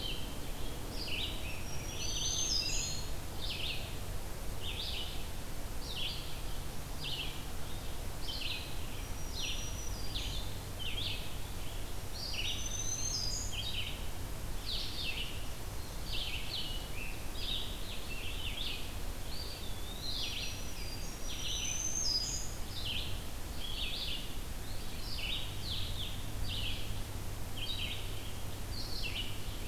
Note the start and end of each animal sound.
0.0s-23.2s: Red-eyed Vireo (Vireo olivaceus)
0.8s-3.2s: Scarlet Tanager (Piranga olivacea)
1.5s-3.3s: Black-throated Green Warbler (Setophaga virens)
1.7s-3.2s: Eastern Wood-Pewee (Contopus virens)
8.9s-10.6s: Black-throated Green Warbler (Setophaga virens)
12.1s-13.2s: Eastern Wood-Pewee (Contopus virens)
12.1s-13.6s: Black-throated Green Warbler (Setophaga virens)
16.2s-19.0s: Scarlet Tanager (Piranga olivacea)
19.1s-20.4s: Eastern Wood-Pewee (Contopus virens)
19.7s-22.9s: Black-throated Green Warbler (Setophaga virens)
23.5s-29.7s: Red-eyed Vireo (Vireo olivaceus)
24.5s-25.5s: Eastern Wood-Pewee (Contopus virens)

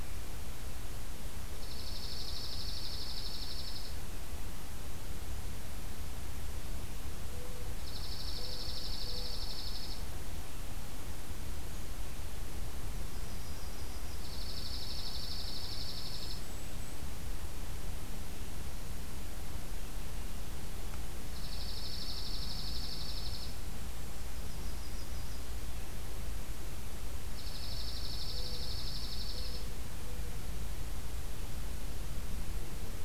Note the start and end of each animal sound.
1.5s-3.9s: Dark-eyed Junco (Junco hyemalis)
7.7s-10.1s: Dark-eyed Junco (Junco hyemalis)
12.9s-14.3s: Yellow-rumped Warbler (Setophaga coronata)
14.2s-16.4s: Dark-eyed Junco (Junco hyemalis)
15.8s-17.1s: Golden-crowned Kinglet (Regulus satrapa)
21.2s-23.5s: Dark-eyed Junco (Junco hyemalis)
24.1s-25.4s: Yellow-rumped Warbler (Setophaga coronata)
27.3s-29.6s: Dark-eyed Junco (Junco hyemalis)

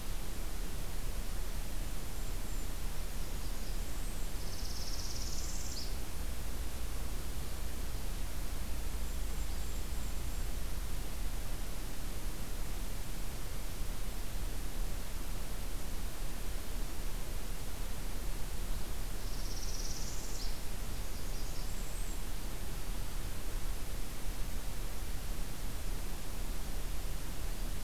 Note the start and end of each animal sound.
1.8s-2.7s: Golden-crowned Kinglet (Regulus satrapa)
2.9s-4.4s: Blackburnian Warbler (Setophaga fusca)
4.2s-5.9s: Northern Parula (Setophaga americana)
8.9s-10.5s: Golden-crowned Kinglet (Regulus satrapa)
19.1s-20.6s: Northern Parula (Setophaga americana)
20.8s-22.3s: Blackburnian Warbler (Setophaga fusca)

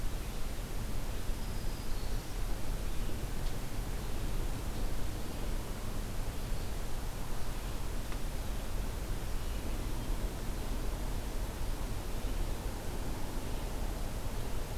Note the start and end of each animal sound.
1.2s-2.5s: Black-throated Green Warbler (Setophaga virens)

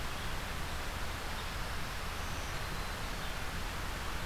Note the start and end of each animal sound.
1.3s-3.2s: Black-throated Green Warbler (Setophaga virens)

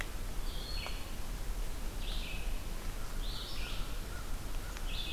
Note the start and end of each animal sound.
0.0s-5.1s: Red-eyed Vireo (Vireo olivaceus)
2.9s-5.1s: American Crow (Corvus brachyrhynchos)

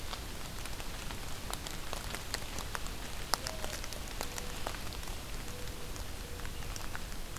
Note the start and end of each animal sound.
3.4s-6.7s: Mourning Dove (Zenaida macroura)

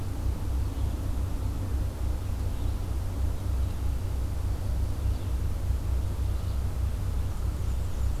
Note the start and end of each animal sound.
0.0s-8.2s: Red-eyed Vireo (Vireo olivaceus)
7.1s-8.2s: Black-and-white Warbler (Mniotilta varia)

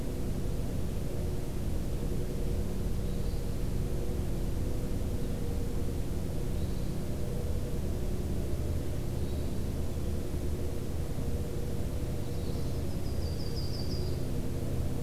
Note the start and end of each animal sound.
3.0s-3.5s: Hermit Thrush (Catharus guttatus)
6.3s-7.0s: Hermit Thrush (Catharus guttatus)
9.1s-9.7s: Hermit Thrush (Catharus guttatus)
12.1s-12.9s: Magnolia Warbler (Setophaga magnolia)
12.3s-12.8s: Hermit Thrush (Catharus guttatus)
12.5s-14.2s: Yellow-rumped Warbler (Setophaga coronata)

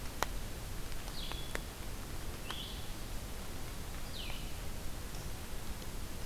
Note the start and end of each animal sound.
1.0s-6.3s: Blue-headed Vireo (Vireo solitarius)

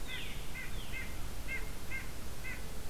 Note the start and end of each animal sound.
0.0s-0.5s: Veery (Catharus fuscescens)
0.0s-2.6s: White-breasted Nuthatch (Sitta carolinensis)

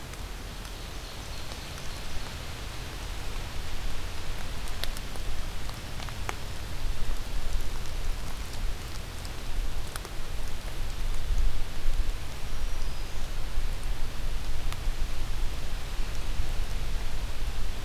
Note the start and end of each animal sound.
0.5s-2.3s: Ovenbird (Seiurus aurocapilla)
12.3s-13.5s: Black-throated Green Warbler (Setophaga virens)

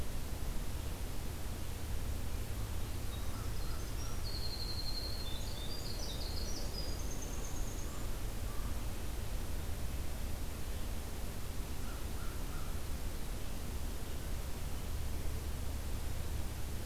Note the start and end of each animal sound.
3.1s-8.1s: Winter Wren (Troglodytes hiemalis)
3.2s-4.3s: American Crow (Corvus brachyrhynchos)
7.4s-8.8s: American Crow (Corvus brachyrhynchos)
11.8s-12.8s: American Crow (Corvus brachyrhynchos)

